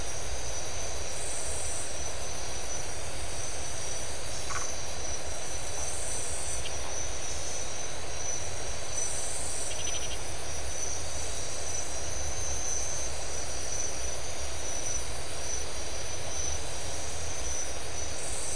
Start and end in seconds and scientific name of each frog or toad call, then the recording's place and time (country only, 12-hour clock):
4.4	4.7	Phyllomedusa distincta
9.6	10.3	Scinax rizibilis
Brazil, 2:15am